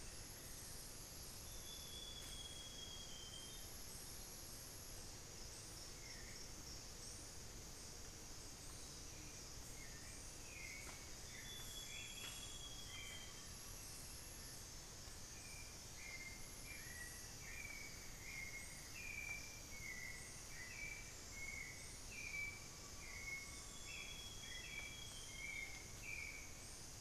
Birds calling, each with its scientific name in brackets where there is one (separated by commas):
Hauxwell's Thrush (Turdus hauxwelli), Amazonian Grosbeak (Cyanoloxia rothschildii), Amazonian Pygmy-Owl (Glaucidium hardyi), Cinnamon-throated Woodcreeper (Dendrexetastes rufigula), Fasciated Antshrike (Cymbilaimus lineatus), unidentified bird